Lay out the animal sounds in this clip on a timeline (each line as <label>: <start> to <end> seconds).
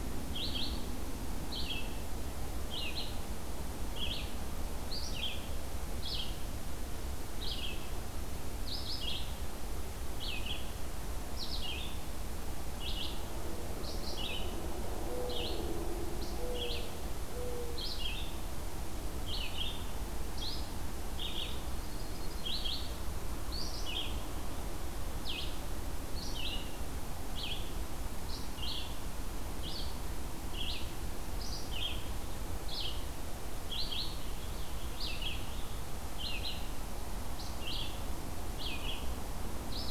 Red-eyed Vireo (Vireo olivaceus): 0.0 to 39.9 seconds
Mourning Dove (Zenaida macroura): 13.3 to 17.9 seconds
Yellow-rumped Warbler (Setophaga coronata): 21.2 to 22.5 seconds
Purple Finch (Haemorhous purpureus): 33.7 to 35.7 seconds